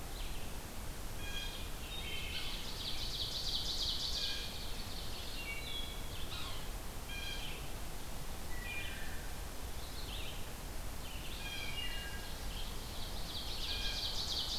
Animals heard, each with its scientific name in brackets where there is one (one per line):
Ovenbird (Seiurus aurocapilla)
Blue Jay (Cyanocitta cristata)
Wood Thrush (Hylocichla mustelina)
Yellow-bellied Sapsucker (Sphyrapicus varius)
Red-eyed Vireo (Vireo olivaceus)